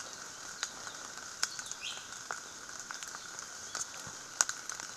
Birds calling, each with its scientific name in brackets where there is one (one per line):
Iiwi (Drepanis coccinea)